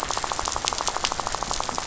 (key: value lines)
label: biophony, rattle
recorder: SoundTrap 500